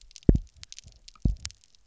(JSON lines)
{"label": "biophony, double pulse", "recorder": "SoundTrap 300"}